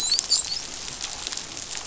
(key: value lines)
label: biophony, dolphin
recorder: SoundTrap 500